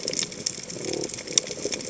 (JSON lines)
{"label": "biophony", "recorder": "HydroMoth"}